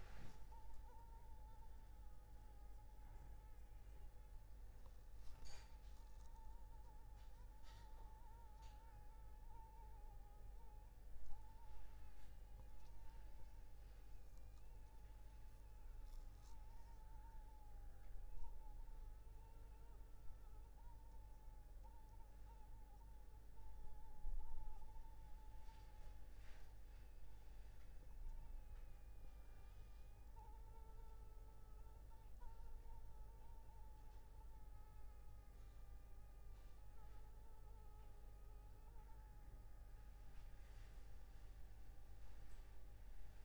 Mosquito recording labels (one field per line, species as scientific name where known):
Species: Anopheles arabiensis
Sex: female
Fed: unfed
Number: one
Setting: cup